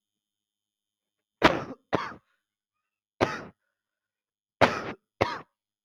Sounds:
Cough